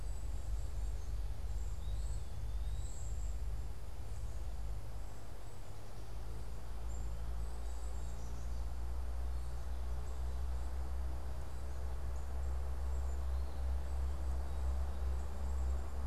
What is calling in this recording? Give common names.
unidentified bird, Eastern Wood-Pewee, Black-capped Chickadee